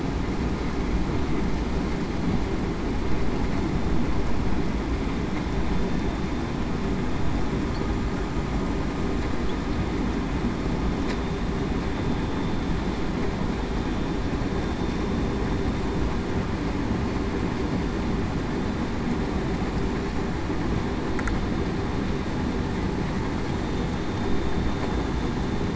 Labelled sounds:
24.9	25.3	vessel noise, 3.5 to 8.0 kHz

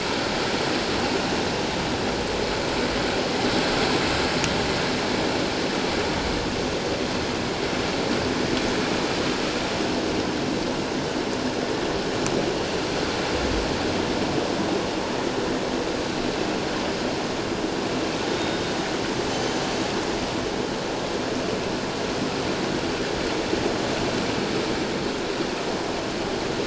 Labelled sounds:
18.3	18.6	killer whale, northern resident, G clan, 3.6 to 3.8 kHz
19.3	19.7	killer whale, northern resident, G clan, 6.0 to 6.2 kHz

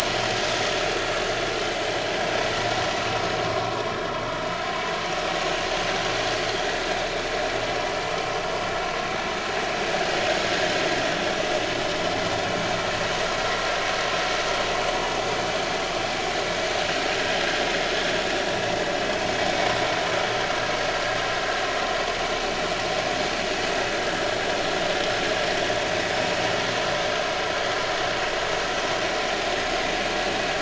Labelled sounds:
0.0	0.4	vessel noise, 5.3 to 5.5 kHz
3.5	3.8	vessel noise, 0.96 to 1.2 kHz

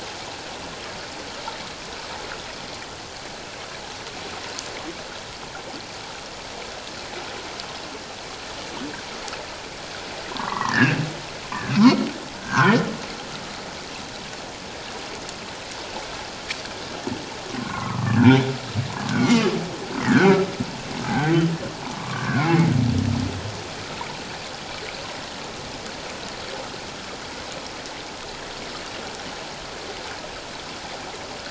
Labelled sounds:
10.3	11.0	humpback whale, 0.84 to 2.1 kHz
11.8	12.8	humpback whale, 0.91 to 2.3 kHz
17.6	18.2	humpback whale, 0.94 to 1.5 kHz
19.0	19.5	humpback whale, 1.1 to 2.3 kHz
20.0	21.3	humpback whale, 0.78 to 2.1 kHz
21.9	22.7	humpback whale, 1.0 to 2.3 kHz

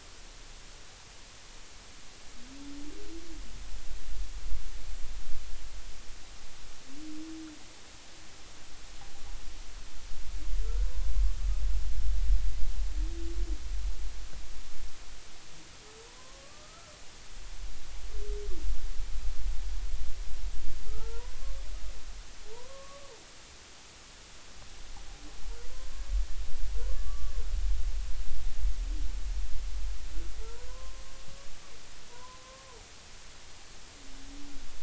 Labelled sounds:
16.2	16.9	humpback whale, 0.96 to 1.4 kHz
20.9	21.6	humpback whale, 0.83 to 1.4 kHz
22.5	23.1	humpback whale, 0.86 to 1.2 kHz
26.9	27.3	humpback whale, 1.1 to 1.3 kHz
30.4	31.0	humpback whale, 0.86 to 1.1 kHz
32.1	32.7	humpback whale, 0.90 to 1.1 kHz

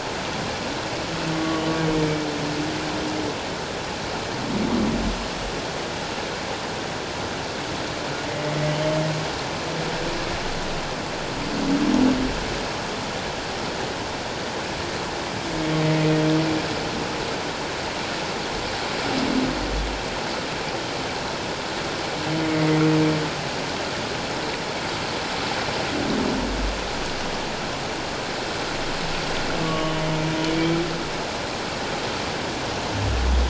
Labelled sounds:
1.3	2.3	humpback whale, 1.1 to 2.3 kHz
22.5	22.8	humpback whale, 2.0 to 2.2 kHz
29.6	30.0	humpback whale, 1.1 to 3.0 kHz

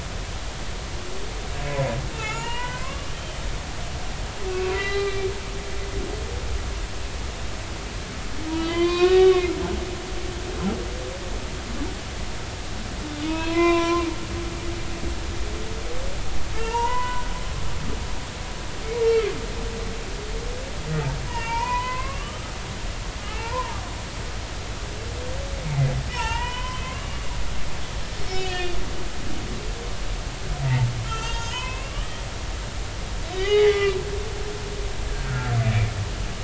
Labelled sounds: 2.1	3.4	humpback whale, 0.80 to 3.2 kHz
4.7	5.3	humpback whale, 1.2 to 4.0 kHz
8.5	9.5	humpback whale, 0.96 to 5.4 kHz
13.2	14.1	humpback whale, 0.90 to 4.2 kHz
16.5	17.3	humpback whale, 0.86 to 3.0 kHz
21.3	22.5	humpback whale, 0.86 to 5.2 kHz
23.2	23.8	humpback whale, 0.83 to 2.4 kHz
25.6	27.2	humpback whale, 0.83 to 3.2 kHz
28.3	28.8	humpback whale, 1.7 to 4.5 kHz
31.0	32.2	humpback whale, 0.86 to 6.7 kHz
33.3	34.0	humpback whale, 0.80 to 3.8 kHz
35.1	35.5	humpback whale, 1.3 to 1.8 kHz

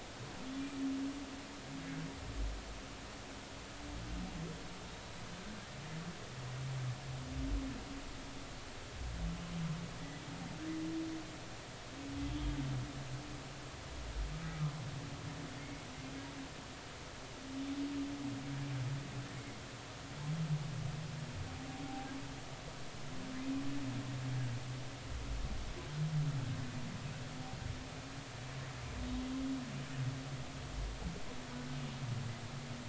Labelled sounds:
15.6	15.9	humpback whale, 2.1 to 2.2 kHz
29.0	29.2	humpback whale, 3.7 to 3.8 kHz

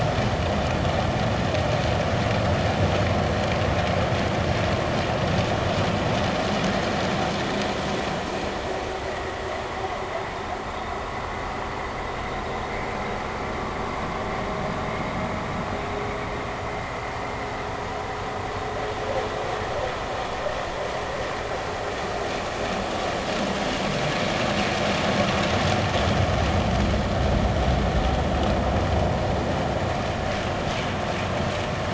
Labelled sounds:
9.0	9.3	vessel noise, 1.9 to 2.0 kHz

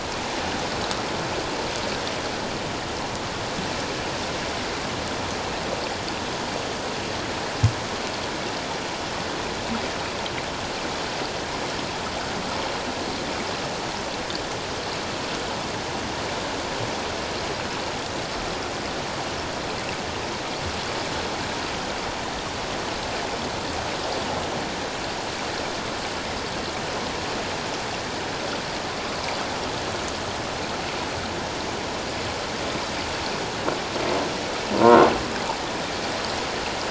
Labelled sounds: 34.8	35.1	croaking sound likely from a nearby submerged object, 0.91 to 1.1 kHz

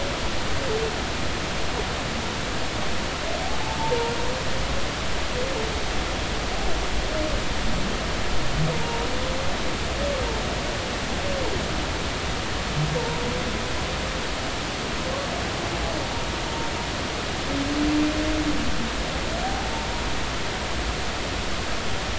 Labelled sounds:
3.6	4.1	humpback whale, 0.83 to 0.99 kHz
8.8	9.0	humpback whale, 0.86 to 0.96 kHz
19.4	19.7	humpback whale, 0.80 to 0.90 kHz

